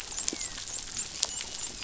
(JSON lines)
{"label": "biophony, dolphin", "recorder": "SoundTrap 500"}